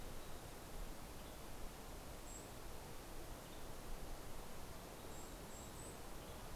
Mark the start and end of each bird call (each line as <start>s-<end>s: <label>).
0.0s-1.0s: Mountain Chickadee (Poecile gambeli)
0.0s-6.5s: Golden-crowned Kinglet (Regulus satrapa)
4.8s-6.5s: Mountain Chickadee (Poecile gambeli)